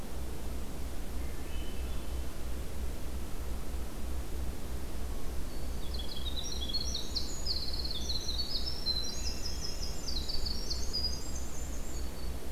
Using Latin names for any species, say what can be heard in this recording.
Catharus guttatus, Setophaga virens, Troglodytes hiemalis